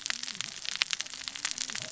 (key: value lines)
label: biophony, cascading saw
recorder: SoundTrap 600 or HydroMoth